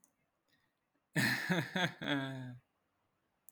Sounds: Laughter